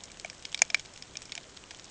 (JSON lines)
{"label": "ambient", "recorder": "HydroMoth"}